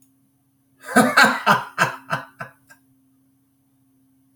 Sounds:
Laughter